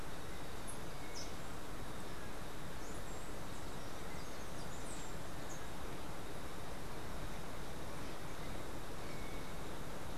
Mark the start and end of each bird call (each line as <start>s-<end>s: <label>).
0.0s-1.9s: unidentified bird
2.7s-5.7s: Steely-vented Hummingbird (Saucerottia saucerottei)